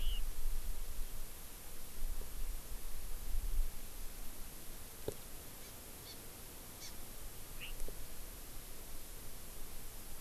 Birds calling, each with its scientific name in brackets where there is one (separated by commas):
Chinese Hwamei (Garrulax canorus), Hawaii Amakihi (Chlorodrepanis virens)